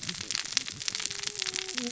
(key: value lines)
label: biophony, cascading saw
recorder: SoundTrap 600 or HydroMoth